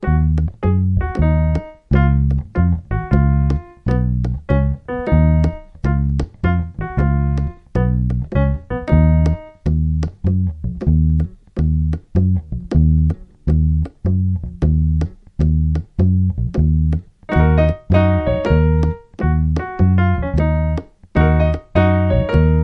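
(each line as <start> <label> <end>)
0.0 Bass guitar and piano playing together. 9.6
9.6 Bass guitar playing a rhythmical song. 17.1
17.2 Bass guitar and piano playing together. 22.6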